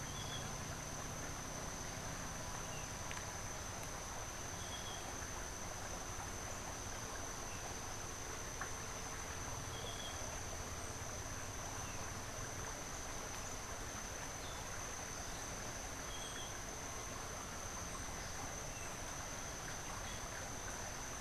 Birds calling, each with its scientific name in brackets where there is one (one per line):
Yellow-throated Euphonia (Euphonia hirundinacea)